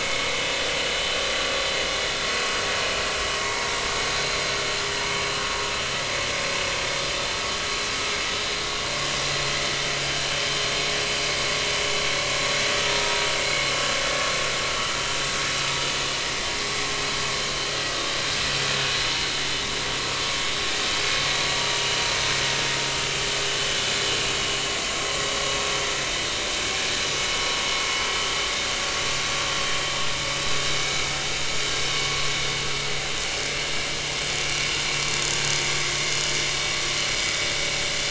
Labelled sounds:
21.6	22.0	vessel noise, 2.8 to 3.0 kHz

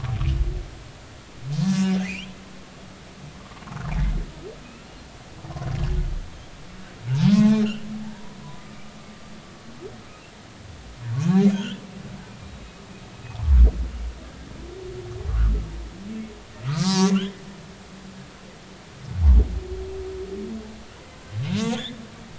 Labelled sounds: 2.0	2.3	humpback whale, 1.9 to 3.5 kHz
3.8	4.1	humpback whale, 0.83 to 1.5 kHz
7.3	8.8	humpback whale, 0.80 to 3.2 kHz
11.1	11.8	humpback whale, 1.1 to 3.6 kHz
16.7	17.4	humpback whale, 0.90 to 3.7 kHz
21.5	22.0	humpback whale, 0.90 to 3.9 kHz

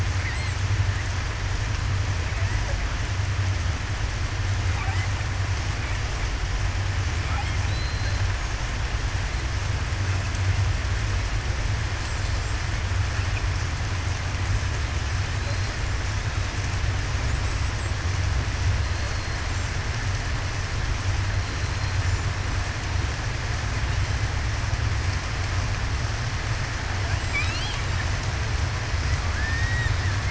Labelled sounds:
7.7	8.0	killer whale, southern resident, 3.9 to 4.2 kHz
15.3	15.7	killer whale, southern resident, 4.0 to 4.3 kHz
17.3	17.9	killer whale, southern resident, 7.5 to 8.0 kHz
27.3	27.7	killer whale, southern resident, 2.2 to 3.4 kHz
29.3	29.9	killer whale, southern resident, 1.5 to 1.9 kHz

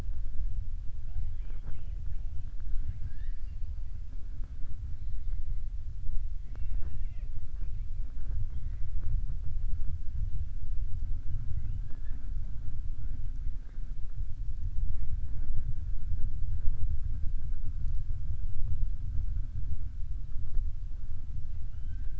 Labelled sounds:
2.7	3.6	killer whale, southern resident, 1.5 to 5.0 kHz
21.6	22.1	killer whale, southern resident, 1.1 to 3.8 kHz

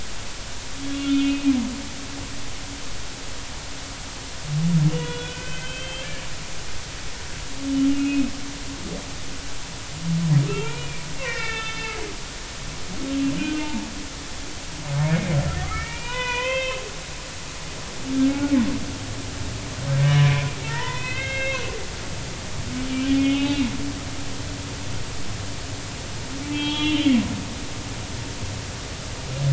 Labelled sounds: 0.8	1.4	humpback whale, 2.4 to 3.4 kHz
4.9	6.1	humpback whale, 1.4 to 3.5 kHz
7.9	8.2	humpback whale, 2.5 to 2.8 kHz
10.5	12.0	humpback whale, 1.2 to 4.1 kHz
13.4	13.9	humpback whale, 0.83 to 3.1 kHz
15.6	16.8	humpback whale, 0.90 to 3.6 kHz
20.2	21.7	humpback whale, 0.86 to 4.2 kHz
22.9	23.7	humpback whale, 0.80 to 3.8 kHz
26.5	27.2	humpback whale, 0.83 to 4.0 kHz

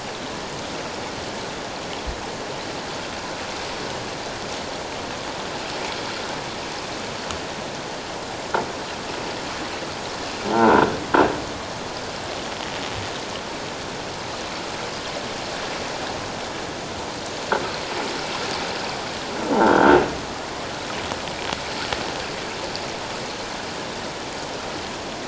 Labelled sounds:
10.5	10.9	croaking sound likely from a nearby submerged object, 1.3 to 1.6 kHz
19.6	20.0	croaking sound likely from a nearby submerged object, 1.3 to 1.6 kHz

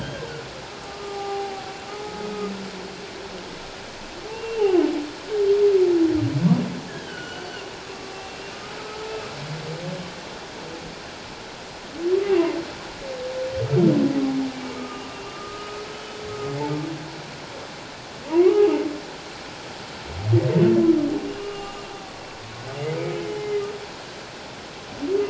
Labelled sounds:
0.0	2.5	humpback whale, 0.78 to 1.7 kHz
4.3	4.6	humpback whale, 2.6 to 2.8 kHz
6.9	7.5	humpback whale, 1.4 to 3.4 kHz
8.5	9.0	humpback whale, 1.2 to 1.3 kHz
14.5	15.9	humpback whale, 1.1 to 2.3 kHz
18.3	18.7	humpback whale, 0.88 to 1.3 kHz
21.4	21.8	humpback whale, 1.1 to 2.9 kHz
23.4	23.6	humpback whale, 2.0 to 2.1 kHz

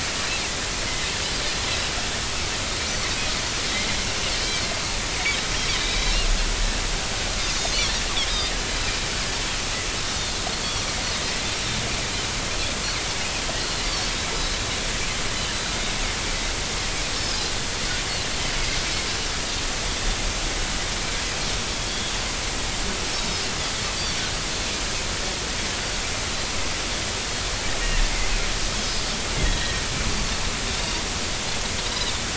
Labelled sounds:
4.4	4.6	Pacific white-sided dolphin, 2.2 to 2.4 kHz
5.7	6.3	Pacific white-sided dolphin, 3.6 to 4.7 kHz
10.5	10.8	Pacific white-sided dolphin, 4.2 to 4.5 kHz
13.6	14.1	Pacific white-sided dolphin, 4.0 to 4.8 kHz
29.4	29.7	Pacific white-sided dolphin, 3.2 to 3.4 kHz
30.1	30.4	Pacific white-sided dolphin, 4.3 to 4.7 kHz

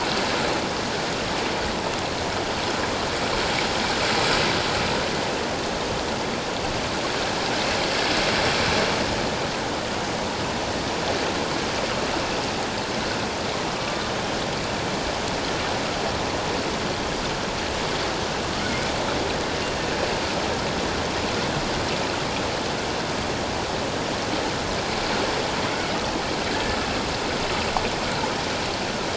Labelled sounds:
13.8	14.0	killer whale, Bigg's (transient), 1.1 to 1.2 kHz

